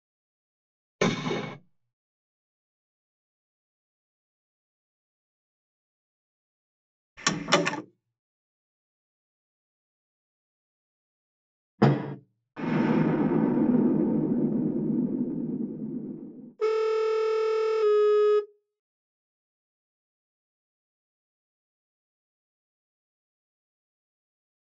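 At 0.99 seconds, gunfire is heard. Then, at 7.17 seconds, there is the sound of a door. Next, at 11.78 seconds, slamming is audible. Later, at 12.55 seconds, you can hear an explosion. Following that, at 16.58 seconds, a telephone can be heard.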